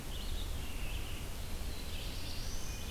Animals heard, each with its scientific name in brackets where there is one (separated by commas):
Black-throated Blue Warbler (Setophaga caerulescens), Red-eyed Vireo (Vireo olivaceus)